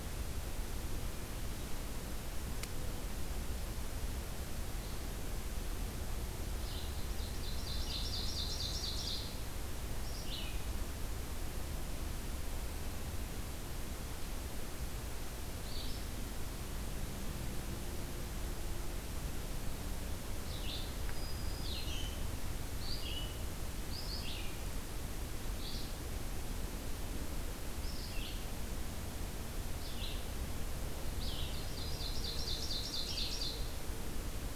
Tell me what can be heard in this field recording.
Red-eyed Vireo, Ovenbird, Black-throated Green Warbler